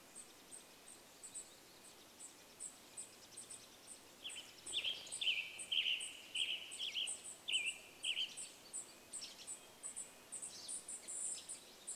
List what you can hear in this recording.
Red-breasted Nuthatch song, unidentified sound, unidentified bird chip note, bird wingbeats, Western Tanager song, Pine Siskin call